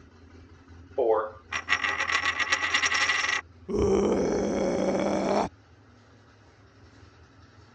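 At 0.96 seconds, a voice says "four." Then at 1.5 seconds, a coin drops. Next, at 3.65 seconds, someone screams.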